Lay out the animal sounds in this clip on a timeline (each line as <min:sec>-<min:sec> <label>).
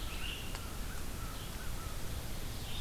0:00.0-0:00.5 Great Crested Flycatcher (Myiarchus crinitus)
0:00.0-0:02.0 American Crow (Corvus brachyrhynchos)
0:00.0-0:02.8 Red-eyed Vireo (Vireo olivaceus)